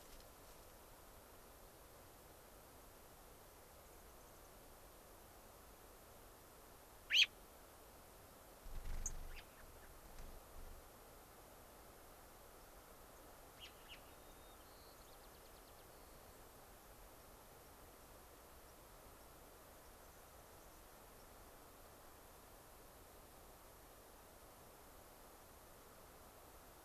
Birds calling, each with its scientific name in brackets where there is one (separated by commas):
White-crowned Sparrow (Zonotrichia leucophrys), American Robin (Turdus migratorius)